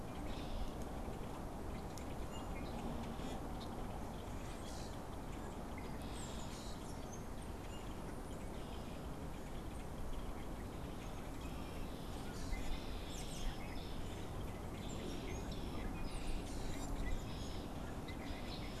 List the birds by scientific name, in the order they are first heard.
Agelaius phoeniceus, unidentified bird, Quiscalus quiscula, Turdus migratorius